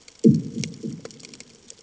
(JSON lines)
{"label": "anthrophony, bomb", "recorder": "HydroMoth"}